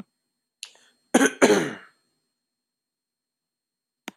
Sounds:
Cough